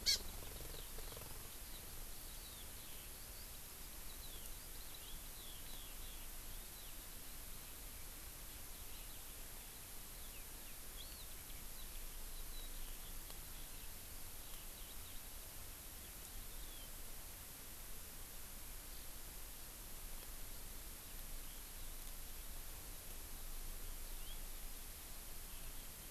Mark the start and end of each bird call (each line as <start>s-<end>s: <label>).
0.0s-7.0s: Eurasian Skylark (Alauda arvensis)
0.1s-0.3s: Hawaii Amakihi (Chlorodrepanis virens)
8.5s-16.9s: Eurasian Skylark (Alauda arvensis)
24.1s-24.4s: House Finch (Haemorhous mexicanus)